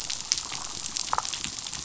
{"label": "biophony, damselfish", "recorder": "SoundTrap 500"}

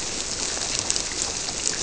{"label": "biophony", "recorder": "SoundTrap 300"}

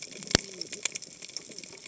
{"label": "biophony, cascading saw", "recorder": "HydroMoth"}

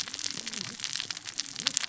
{"label": "biophony, cascading saw", "recorder": "SoundTrap 600 or HydroMoth"}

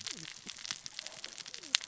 {"label": "biophony, cascading saw", "recorder": "SoundTrap 600 or HydroMoth"}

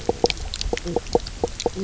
{"label": "biophony, knock croak", "recorder": "SoundTrap 300"}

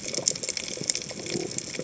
{"label": "biophony", "recorder": "HydroMoth"}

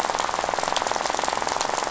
{"label": "biophony, rattle", "recorder": "SoundTrap 500"}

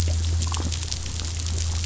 {"label": "biophony, damselfish", "recorder": "SoundTrap 500"}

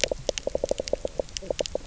{"label": "biophony, knock croak", "recorder": "SoundTrap 300"}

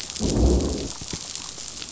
{"label": "biophony, growl", "recorder": "SoundTrap 500"}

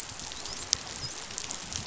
{"label": "biophony, dolphin", "recorder": "SoundTrap 500"}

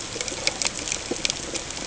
{"label": "ambient", "recorder": "HydroMoth"}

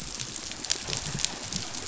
{"label": "biophony", "recorder": "SoundTrap 500"}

